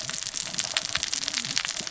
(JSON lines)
{"label": "biophony, cascading saw", "recorder": "SoundTrap 600 or HydroMoth"}